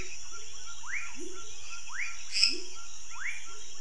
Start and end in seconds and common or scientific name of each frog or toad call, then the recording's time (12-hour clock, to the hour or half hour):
0.7	3.8	rufous frog
1.1	3.8	pepper frog
2.1	2.7	lesser tree frog
8:30pm